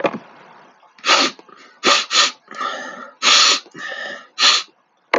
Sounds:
Sniff